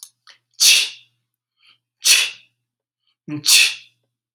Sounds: Sneeze